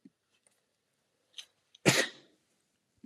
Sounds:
Sneeze